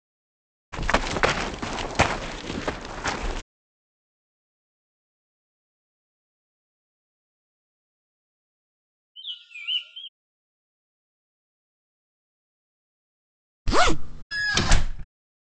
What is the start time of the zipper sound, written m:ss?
0:14